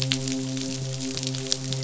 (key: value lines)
label: biophony, midshipman
recorder: SoundTrap 500